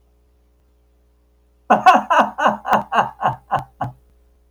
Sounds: Laughter